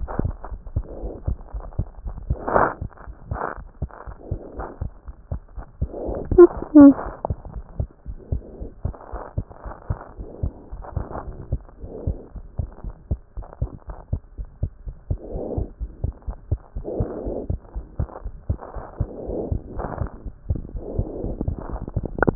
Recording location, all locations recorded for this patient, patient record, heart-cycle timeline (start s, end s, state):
pulmonary valve (PV)
aortic valve (AV)+pulmonary valve (PV)+tricuspid valve (TV)+mitral valve (MV)
#Age: Child
#Sex: Male
#Height: nan
#Weight: nan
#Pregnancy status: False
#Murmur: Present
#Murmur locations: aortic valve (AV)+mitral valve (MV)+pulmonary valve (PV)+tricuspid valve (TV)
#Most audible location: tricuspid valve (TV)
#Systolic murmur timing: Holosystolic
#Systolic murmur shape: Plateau
#Systolic murmur grading: II/VI
#Systolic murmur pitch: Low
#Systolic murmur quality: Blowing
#Diastolic murmur timing: nan
#Diastolic murmur shape: nan
#Diastolic murmur grading: nan
#Diastolic murmur pitch: nan
#Diastolic murmur quality: nan
#Outcome: Normal
#Campaign: 2014 screening campaign
0.00	7.48	unannotated
7.48	7.54	diastole
7.54	7.64	S1
7.64	7.80	systole
7.80	7.88	S2
7.88	8.06	diastole
8.06	8.16	S1
8.16	8.32	systole
8.32	8.42	S2
8.42	8.56	diastole
8.56	8.68	S1
8.68	8.84	systole
8.84	8.94	S2
8.94	9.10	diastole
9.10	9.20	S1
9.20	9.38	systole
9.38	9.46	S2
9.46	9.62	diastole
9.62	9.74	S1
9.74	9.90	systole
9.90	10.00	S2
10.00	10.14	diastole
10.14	10.26	S1
10.26	10.42	systole
10.42	10.54	S2
10.54	10.72	diastole
10.72	22.35	unannotated